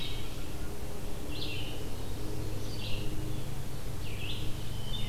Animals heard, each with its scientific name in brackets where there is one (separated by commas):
Red-eyed Vireo (Vireo olivaceus), Wood Thrush (Hylocichla mustelina)